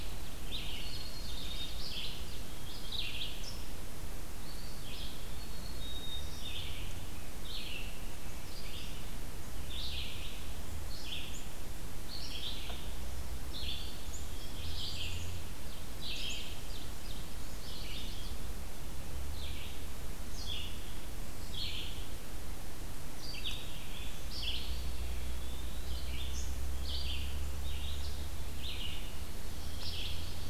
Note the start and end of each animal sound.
0.0s-2.6s: Ovenbird (Seiurus aurocapilla)
0.4s-30.5s: Red-eyed Vireo (Vireo olivaceus)
0.6s-1.8s: Black-capped Chickadee (Poecile atricapillus)
4.1s-5.6s: Eastern Wood-Pewee (Contopus virens)
5.3s-6.4s: Black-capped Chickadee (Poecile atricapillus)
14.6s-15.4s: Black-capped Chickadee (Poecile atricapillus)
15.3s-17.2s: Ovenbird (Seiurus aurocapilla)
17.3s-18.4s: Chestnut-sided Warbler (Setophaga pensylvanica)
24.3s-26.2s: Eastern Wood-Pewee (Contopus virens)

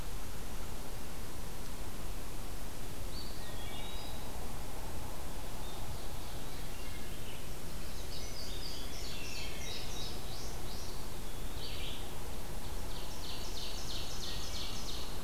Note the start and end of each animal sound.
2.9s-4.4s: Eastern Wood-Pewee (Contopus virens)
3.3s-4.1s: Wood Thrush (Hylocichla mustelina)
5.3s-7.3s: Ovenbird (Seiurus aurocapilla)
6.6s-7.3s: Wood Thrush (Hylocichla mustelina)
7.7s-10.9s: Indigo Bunting (Passerina cyanea)
8.4s-9.5s: Eastern Wood-Pewee (Contopus virens)
9.3s-9.9s: Wood Thrush (Hylocichla mustelina)
10.6s-11.8s: Eastern Wood-Pewee (Contopus virens)
11.5s-12.1s: Red-eyed Vireo (Vireo olivaceus)
12.7s-15.2s: Ovenbird (Seiurus aurocapilla)

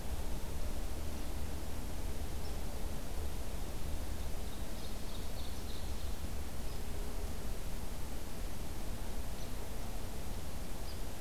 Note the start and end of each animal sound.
4.4s-6.3s: Ovenbird (Seiurus aurocapilla)

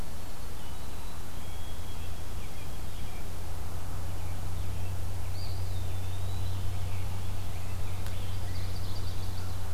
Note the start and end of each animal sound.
0.0s-3.2s: White-throated Sparrow (Zonotrichia albicollis)
5.2s-7.0s: Eastern Wood-Pewee (Contopus virens)
8.3s-9.7s: Chestnut-sided Warbler (Setophaga pensylvanica)

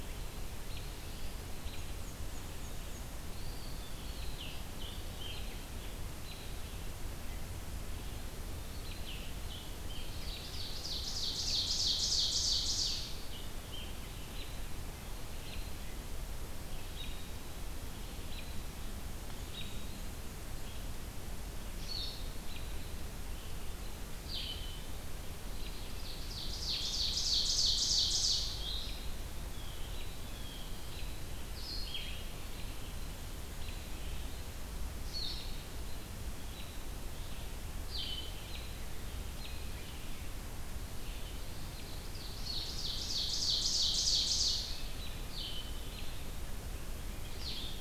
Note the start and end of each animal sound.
0.0s-15.7s: American Robin (Turdus migratorius)
1.5s-3.2s: Black-and-white Warbler (Mniotilta varia)
3.2s-4.2s: Eastern Wood-Pewee (Contopus virens)
4.0s-5.6s: Scarlet Tanager (Piranga olivacea)
8.8s-10.2s: Scarlet Tanager (Piranga olivacea)
10.3s-13.2s: Ovenbird (Seiurus aurocapilla)
12.8s-14.2s: Scarlet Tanager (Piranga olivacea)
16.9s-47.8s: American Robin (Turdus migratorius)
21.6s-47.8s: Blue-headed Vireo (Vireo solitarius)
26.0s-28.6s: Ovenbird (Seiurus aurocapilla)
29.4s-30.8s: Blue Jay (Cyanocitta cristata)
42.0s-44.8s: Ovenbird (Seiurus aurocapilla)

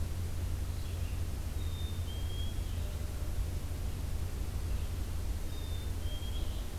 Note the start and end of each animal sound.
0.0s-6.8s: Red-eyed Vireo (Vireo olivaceus)
1.6s-2.7s: Black-capped Chickadee (Poecile atricapillus)
5.4s-6.5s: Black-capped Chickadee (Poecile atricapillus)

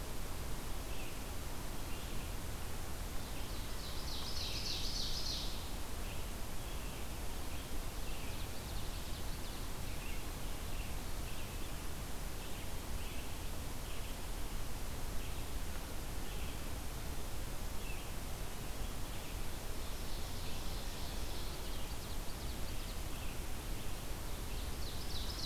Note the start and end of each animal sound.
0.0s-25.5s: Red-eyed Vireo (Vireo olivaceus)
3.2s-5.5s: Ovenbird (Seiurus aurocapilla)
8.1s-9.7s: Ovenbird (Seiurus aurocapilla)
19.8s-23.1s: Ovenbird (Seiurus aurocapilla)
24.2s-25.5s: Ovenbird (Seiurus aurocapilla)

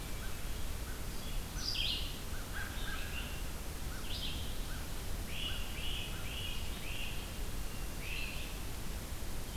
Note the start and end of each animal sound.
0.0s-6.4s: American Crow (Corvus brachyrhynchos)
0.0s-9.6s: Red-eyed Vireo (Vireo olivaceus)
5.2s-8.3s: Great Crested Flycatcher (Myiarchus crinitus)
7.6s-8.5s: Hermit Thrush (Catharus guttatus)

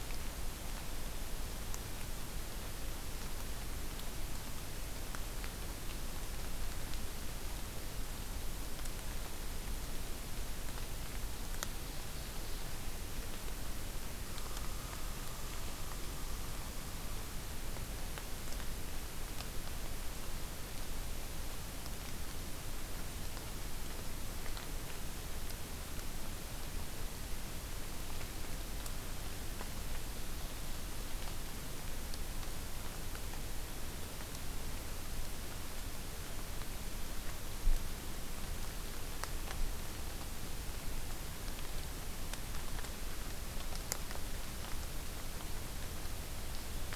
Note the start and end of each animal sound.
11.2s-12.8s: Ovenbird (Seiurus aurocapilla)
14.2s-16.8s: American Crow (Corvus brachyrhynchos)

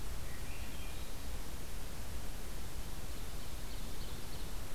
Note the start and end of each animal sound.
0.2s-1.3s: Swainson's Thrush (Catharus ustulatus)
2.9s-4.6s: Ovenbird (Seiurus aurocapilla)

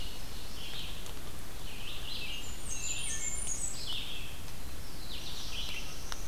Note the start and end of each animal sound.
0.0s-1.0s: Ovenbird (Seiurus aurocapilla)
0.0s-6.3s: Red-eyed Vireo (Vireo olivaceus)
2.2s-4.0s: Blackburnian Warbler (Setophaga fusca)
4.6s-6.3s: Black-throated Blue Warbler (Setophaga caerulescens)

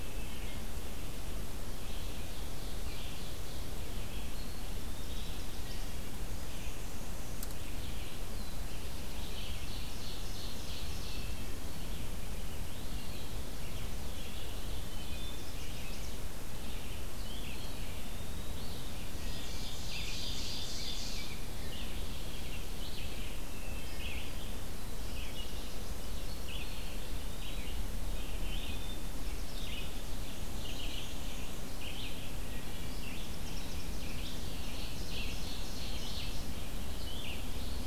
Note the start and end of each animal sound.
0.0s-8.3s: Red-eyed Vireo (Vireo olivaceus)
1.8s-3.8s: Ovenbird (Seiurus aurocapilla)
4.1s-5.9s: Eastern Wood-Pewee (Contopus virens)
6.2s-7.5s: Black-and-white Warbler (Mniotilta varia)
7.6s-9.6s: Black-throated Blue Warbler (Setophaga caerulescens)
8.6s-37.9s: Red-eyed Vireo (Vireo olivaceus)
8.9s-11.5s: Ovenbird (Seiurus aurocapilla)
10.9s-11.9s: Wood Thrush (Hylocichla mustelina)
12.6s-13.4s: Eastern Wood-Pewee (Contopus virens)
14.7s-16.1s: Wood Thrush (Hylocichla mustelina)
15.0s-16.3s: Chestnut-sided Warbler (Setophaga pensylvanica)
17.2s-18.9s: Eastern Wood-Pewee (Contopus virens)
18.7s-21.5s: Ovenbird (Seiurus aurocapilla)
20.5s-22.0s: Rose-breasted Grosbeak (Pheucticus ludovicianus)
23.5s-24.1s: Wood Thrush (Hylocichla mustelina)
24.9s-26.1s: Chestnut-sided Warbler (Setophaga pensylvanica)
26.1s-27.9s: Eastern Wood-Pewee (Contopus virens)
30.1s-31.7s: Black-and-white Warbler (Mniotilta varia)
32.2s-33.4s: Wood Thrush (Hylocichla mustelina)
33.1s-34.5s: Chestnut-sided Warbler (Setophaga pensylvanica)
33.5s-36.6s: Ovenbird (Seiurus aurocapilla)
37.2s-37.9s: Eastern Wood-Pewee (Contopus virens)

